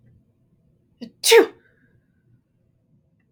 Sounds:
Sneeze